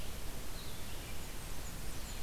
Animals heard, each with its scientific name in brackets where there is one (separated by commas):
Blue-headed Vireo (Vireo solitarius), Blackburnian Warbler (Setophaga fusca), Red-eyed Vireo (Vireo olivaceus)